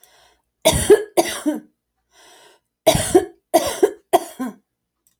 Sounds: Cough